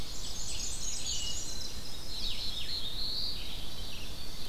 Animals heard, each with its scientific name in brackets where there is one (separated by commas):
Black-and-white Warbler (Mniotilta varia), Red-eyed Vireo (Vireo olivaceus), Blue-headed Vireo (Vireo solitarius), Ovenbird (Seiurus aurocapilla), Wood Thrush (Hylocichla mustelina), Black-throated Blue Warbler (Setophaga caerulescens)